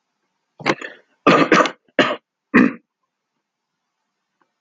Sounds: Throat clearing